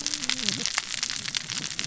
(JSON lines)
{"label": "biophony, cascading saw", "recorder": "SoundTrap 600 or HydroMoth"}